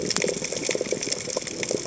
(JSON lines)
{"label": "biophony, chatter", "recorder": "HydroMoth"}